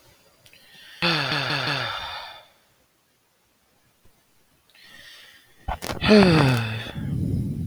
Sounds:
Sigh